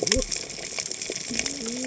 {"label": "biophony, cascading saw", "recorder": "HydroMoth"}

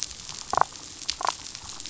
{"label": "biophony, damselfish", "recorder": "SoundTrap 500"}
{"label": "biophony", "recorder": "SoundTrap 500"}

